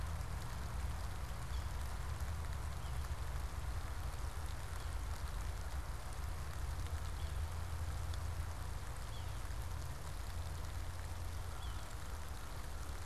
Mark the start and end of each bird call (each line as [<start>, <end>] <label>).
[1.33, 1.83] Yellow-bellied Sapsucker (Sphyrapicus varius)
[2.73, 3.13] Yellow-bellied Sapsucker (Sphyrapicus varius)
[4.63, 5.03] Yellow-bellied Sapsucker (Sphyrapicus varius)
[7.03, 7.53] Yellow-bellied Sapsucker (Sphyrapicus varius)
[8.93, 9.43] Yellow-bellied Sapsucker (Sphyrapicus varius)
[11.43, 11.93] Yellow-bellied Sapsucker (Sphyrapicus varius)